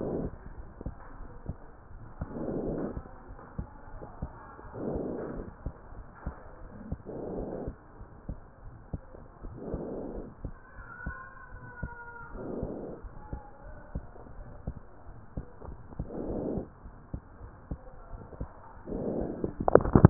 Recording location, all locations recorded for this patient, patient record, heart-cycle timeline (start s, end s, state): pulmonary valve (PV)
pulmonary valve (PV)+tricuspid valve (TV)
#Age: Child
#Sex: Female
#Height: 123.0 cm
#Weight: 31.0 kg
#Pregnancy status: False
#Murmur: Unknown
#Murmur locations: nan
#Most audible location: nan
#Systolic murmur timing: nan
#Systolic murmur shape: nan
#Systolic murmur grading: nan
#Systolic murmur pitch: nan
#Systolic murmur quality: nan
#Diastolic murmur timing: nan
#Diastolic murmur shape: nan
#Diastolic murmur grading: nan
#Diastolic murmur pitch: nan
#Diastolic murmur quality: nan
#Outcome: Normal
#Campaign: 2015 screening campaign
0.00	0.92	unannotated
0.92	1.19	diastole
1.19	1.34	S1
1.34	1.48	systole
1.48	1.58	S2
1.58	1.94	diastole
1.94	2.06	S1
2.06	2.20	systole
2.20	2.30	S2
2.30	2.62	diastole
2.62	2.80	S1
2.80	2.94	systole
2.94	3.06	S2
3.06	3.36	diastole
3.36	3.46	S1
3.46	3.58	systole
3.58	3.68	S2
3.68	4.00	diastole
4.00	4.10	S1
4.10	4.22	systole
4.22	4.32	S2
4.32	4.70	diastole
4.70	4.80	S1
4.80	4.88	systole
4.88	5.04	S2
5.04	5.36	diastole
5.36	5.48	S1
5.48	5.62	systole
5.62	5.72	S2
5.72	5.93	diastole
5.93	6.14	S1
6.14	6.26	systole
6.26	6.36	S2
6.36	6.67	diastole
6.67	6.82	S1
6.82	6.90	systole
6.90	7.00	S2
7.00	7.32	diastole
7.32	7.48	S1
7.48	7.60	systole
7.60	7.74	S2
7.74	7.97	diastole
7.97	8.16	S1
8.16	8.28	systole
8.28	8.36	S2
8.36	8.64	diastole
8.64	8.80	S1
8.80	8.94	systole
8.94	9.08	S2
9.08	9.40	diastole
9.40	9.58	S1
9.58	9.70	systole
9.70	9.86	S2
9.86	10.13	diastole
10.13	10.30	S1
10.30	10.44	systole
10.44	10.54	S2
10.54	10.81	diastole
10.81	10.94	S1
10.94	11.06	systole
11.06	11.16	S2
11.16	11.54	diastole
11.54	11.68	S1
11.68	11.84	systole
11.84	11.98	S2
11.98	12.34	diastole
12.34	12.46	S1
12.46	12.58	systole
12.58	12.72	S2
12.72	13.04	diastole
13.04	13.16	S1
13.16	13.30	systole
13.30	13.40	S2
13.40	13.64	diastole
13.64	13.78	S1
13.78	13.92	systole
13.92	14.06	S2
14.06	14.37	diastole
14.37	14.54	S1
14.54	14.68	systole
14.68	14.78	S2
14.78	15.07	diastole
15.07	15.22	S1
15.22	15.36	systole
15.36	15.44	S2
15.44	15.68	diastole
15.68	15.78	S1
15.78	15.92	systole
15.92	16.07	S2
16.07	16.24	diastole
16.24	16.42	S1
16.42	16.48	systole
16.48	16.64	S2
16.64	16.82	diastole
16.82	17.00	S1
17.00	17.10	systole
17.10	17.20	S2
17.20	17.50	diastole
17.50	17.60	S1
17.60	17.72	systole
17.72	17.82	S2
17.82	18.09	diastole
18.09	18.26	S1
18.26	18.38	systole
18.38	18.52	S2
18.52	18.83	diastole
18.83	20.10	unannotated